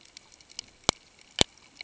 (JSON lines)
{"label": "ambient", "recorder": "HydroMoth"}